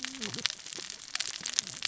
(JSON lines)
{"label": "biophony, cascading saw", "recorder": "SoundTrap 600 or HydroMoth"}